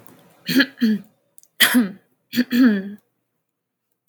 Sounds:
Throat clearing